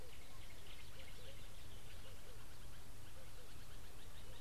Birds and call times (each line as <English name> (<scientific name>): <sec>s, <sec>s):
Red-eyed Dove (Streptopelia semitorquata): 2.1s